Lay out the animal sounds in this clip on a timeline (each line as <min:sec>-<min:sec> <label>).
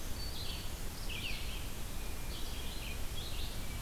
0:00.0-0:00.9 Black-throated Green Warbler (Setophaga virens)
0:00.0-0:03.8 Red-eyed Vireo (Vireo olivaceus)
0:03.3-0:03.8 Hermit Thrush (Catharus guttatus)